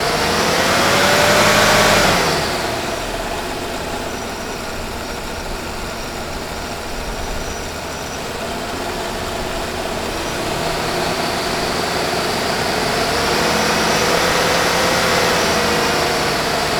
Is someone operating the vehicle?
yes